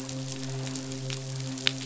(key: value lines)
label: biophony, midshipman
recorder: SoundTrap 500